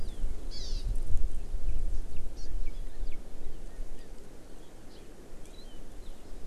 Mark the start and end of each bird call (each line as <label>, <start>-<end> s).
Hawaii Amakihi (Chlorodrepanis virens), 0.5-0.9 s
Hawaii Amakihi (Chlorodrepanis virens), 2.4-2.5 s